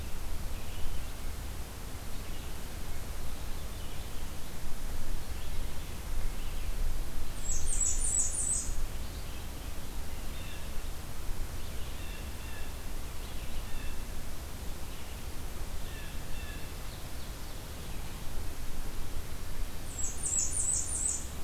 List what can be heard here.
Red-eyed Vireo, Blackburnian Warbler, Blue Jay, Ovenbird